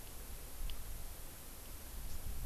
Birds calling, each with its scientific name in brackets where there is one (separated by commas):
Hawaii Amakihi (Chlorodrepanis virens)